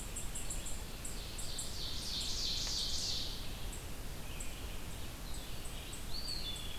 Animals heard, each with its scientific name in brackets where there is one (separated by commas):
Ovenbird (Seiurus aurocapilla), Red-eyed Vireo (Vireo olivaceus), Eastern Wood-Pewee (Contopus virens), unidentified call